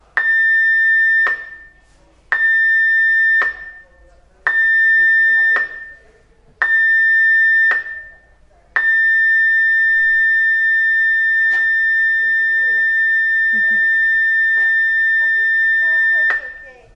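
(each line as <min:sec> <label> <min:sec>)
0:00.0 A loud, urgent tone repeats in a pattern designed to capture immediate attention, commonly heard during safety drills or alerts on large marine vessels. 0:16.9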